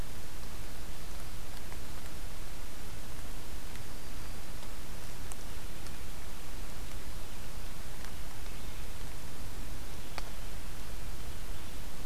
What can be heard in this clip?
Black-throated Green Warbler